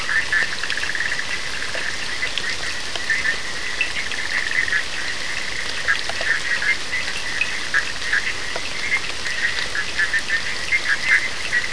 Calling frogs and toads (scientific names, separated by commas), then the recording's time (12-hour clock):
Boana bischoffi
1:15am